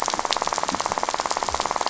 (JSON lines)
{"label": "biophony, rattle", "recorder": "SoundTrap 500"}